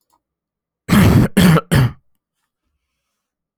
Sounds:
Cough